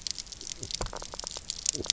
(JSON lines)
{"label": "biophony", "recorder": "SoundTrap 300"}